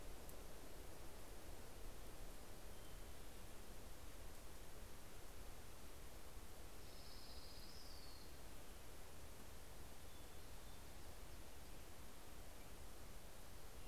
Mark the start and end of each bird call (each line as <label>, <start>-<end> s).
Orange-crowned Warbler (Leiothlypis celata), 6.2-7.8 s